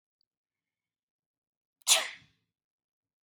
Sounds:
Sneeze